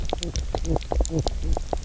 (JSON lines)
{"label": "biophony, knock croak", "recorder": "SoundTrap 300"}